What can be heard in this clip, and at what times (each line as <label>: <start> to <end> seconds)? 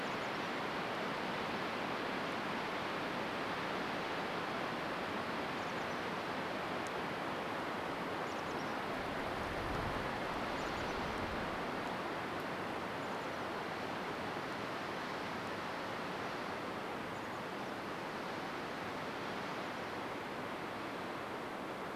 Chestnut-backed Chickadee call: 0 to 2 seconds
Golden-crowned Kinglet song: 0 to 2 seconds
Chestnut-backed Chickadee call: 4 to 6 seconds
Chestnut-backed Chickadee call: 8 to 14 seconds
Chestnut-backed Chickadee call: 16 to 20 seconds